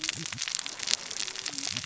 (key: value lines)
label: biophony, cascading saw
recorder: SoundTrap 600 or HydroMoth